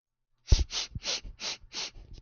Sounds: Sniff